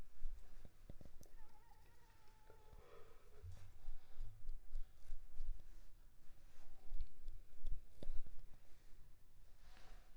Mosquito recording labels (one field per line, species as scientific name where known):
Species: Anopheles arabiensis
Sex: female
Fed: unfed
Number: one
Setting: cup